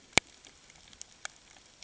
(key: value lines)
label: ambient
recorder: HydroMoth